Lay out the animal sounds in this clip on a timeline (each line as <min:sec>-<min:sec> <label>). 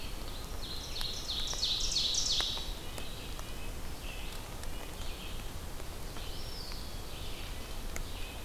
0:00.0-0:08.4 Red-eyed Vireo (Vireo olivaceus)
0:00.2-0:02.9 Ovenbird (Seiurus aurocapilla)
0:02.8-0:08.4 Red-breasted Nuthatch (Sitta canadensis)
0:06.0-0:07.2 Eastern Wood-Pewee (Contopus virens)